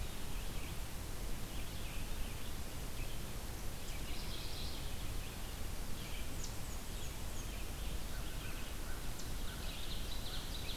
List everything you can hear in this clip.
Red-eyed Vireo, Mourning Warbler, Black-and-white Warbler, American Crow, Ovenbird